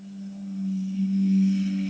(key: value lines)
label: anthrophony, boat engine
recorder: HydroMoth